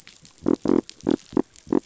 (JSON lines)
{"label": "biophony", "recorder": "SoundTrap 500"}